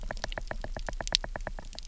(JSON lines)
{"label": "biophony, knock", "recorder": "SoundTrap 300"}